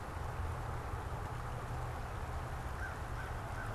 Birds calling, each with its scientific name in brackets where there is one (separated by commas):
American Crow (Corvus brachyrhynchos)